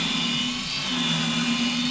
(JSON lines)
{"label": "anthrophony, boat engine", "recorder": "SoundTrap 500"}